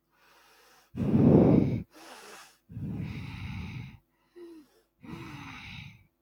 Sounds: Sigh